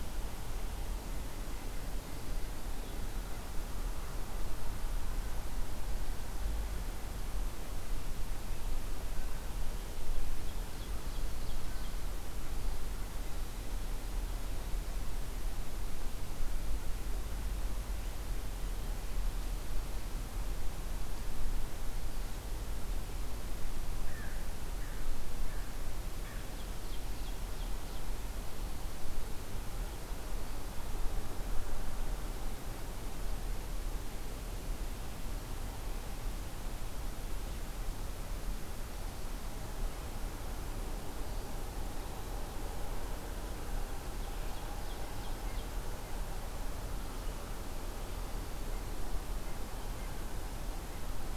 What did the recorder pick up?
American Crow, Ovenbird